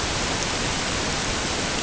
{"label": "ambient", "recorder": "HydroMoth"}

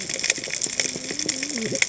{"label": "biophony, cascading saw", "recorder": "HydroMoth"}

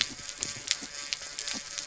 {"label": "anthrophony, boat engine", "recorder": "SoundTrap 300"}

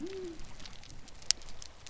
{"label": "biophony", "recorder": "SoundTrap 300"}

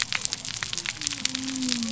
{"label": "biophony", "recorder": "SoundTrap 300"}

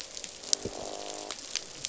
{"label": "biophony, croak", "recorder": "SoundTrap 500"}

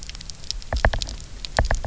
{"label": "biophony, knock", "recorder": "SoundTrap 300"}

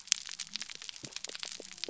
{"label": "biophony", "recorder": "SoundTrap 300"}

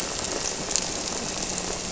{"label": "anthrophony, boat engine", "recorder": "SoundTrap 300"}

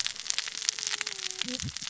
{"label": "biophony, cascading saw", "recorder": "SoundTrap 600 or HydroMoth"}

